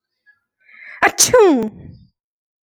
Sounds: Sneeze